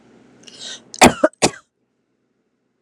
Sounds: Cough